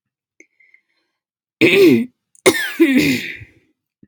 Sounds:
Throat clearing